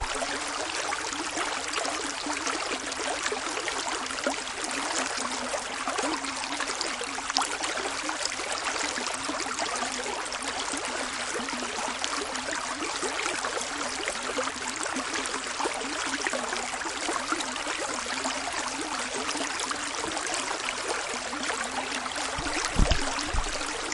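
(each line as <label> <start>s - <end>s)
Water flowing steadily. 0.0s - 23.9s
Water gurgles continuously without a specific rhythm. 0.0s - 23.9s
A single plop sound. 4.1s - 4.5s
A single plop sound. 7.2s - 7.6s
A muffled plop sound. 22.6s - 23.1s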